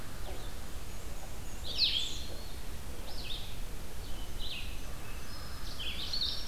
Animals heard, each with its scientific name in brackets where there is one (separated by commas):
American Crow (Corvus brachyrhynchos), Blue-headed Vireo (Vireo solitarius), Black-throated Green Warbler (Setophaga virens)